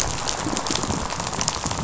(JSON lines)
{"label": "biophony, rattle", "recorder": "SoundTrap 500"}